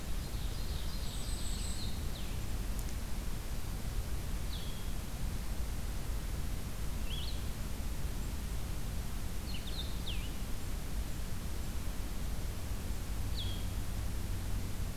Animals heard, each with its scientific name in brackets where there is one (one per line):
Golden-crowned Kinglet (Regulus satrapa)
Ovenbird (Seiurus aurocapilla)
Blue-headed Vireo (Vireo solitarius)